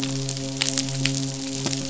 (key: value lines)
label: biophony, midshipman
recorder: SoundTrap 500